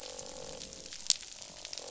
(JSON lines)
{"label": "biophony, croak", "recorder": "SoundTrap 500"}